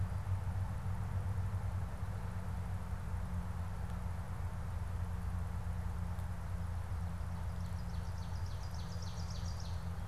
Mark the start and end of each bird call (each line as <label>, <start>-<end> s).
Ovenbird (Seiurus aurocapilla), 6.4-10.1 s